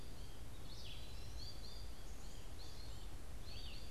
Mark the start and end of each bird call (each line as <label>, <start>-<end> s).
American Goldfinch (Spinus tristis), 0.0-3.9 s
Eastern Wood-Pewee (Contopus virens), 0.0-3.9 s
Red-eyed Vireo (Vireo olivaceus), 0.0-3.9 s